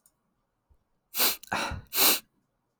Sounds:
Sniff